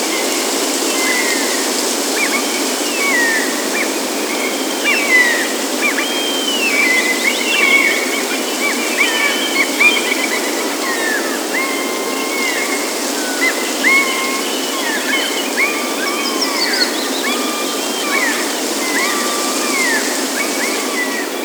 What animals are making noise?
birds